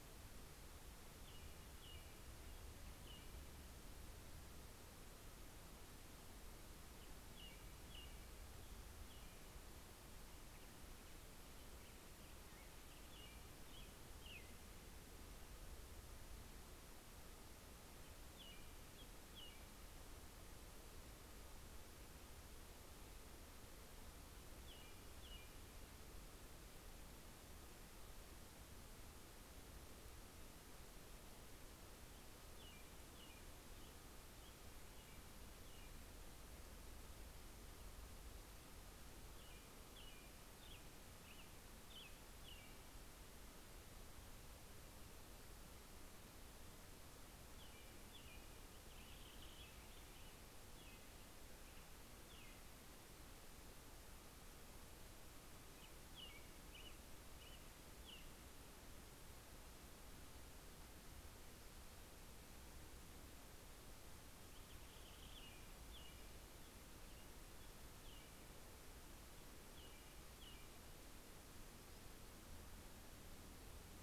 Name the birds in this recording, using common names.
American Robin, Purple Finch